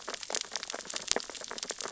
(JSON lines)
{"label": "biophony, sea urchins (Echinidae)", "recorder": "SoundTrap 600 or HydroMoth"}